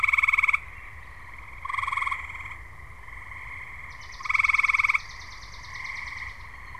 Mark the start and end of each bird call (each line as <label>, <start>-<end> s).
Swamp Sparrow (Melospiza georgiana), 3.7-6.7 s